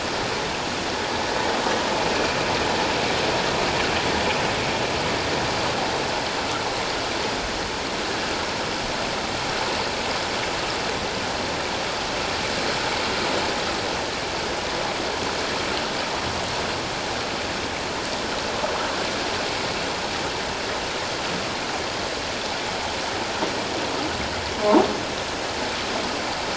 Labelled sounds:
2.1	2.4	vessel noise, 2.3 to 2.6 kHz

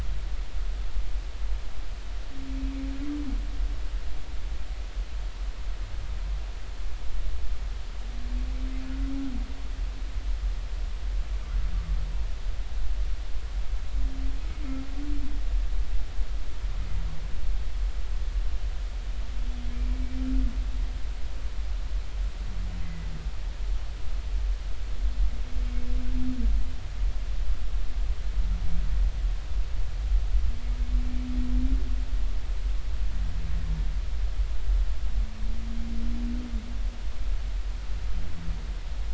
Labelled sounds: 22.8	23.1	humpback whale, 2.0 to 2.1 kHz

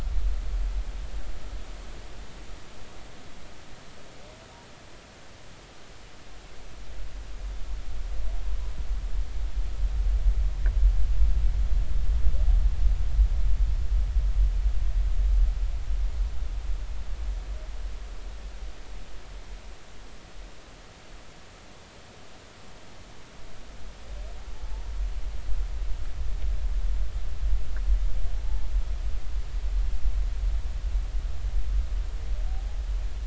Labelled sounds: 24.5	24.8	humpback whale, 0.83 to 0.96 kHz

